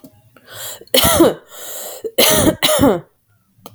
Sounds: Cough